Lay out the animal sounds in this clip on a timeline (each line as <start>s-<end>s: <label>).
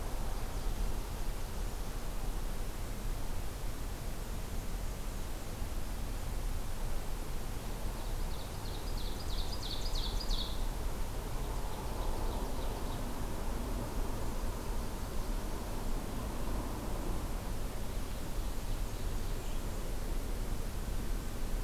7.9s-10.7s: Ovenbird (Seiurus aurocapilla)
11.0s-13.1s: Ovenbird (Seiurus aurocapilla)
18.0s-19.6s: Ovenbird (Seiurus aurocapilla)